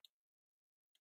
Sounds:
Cough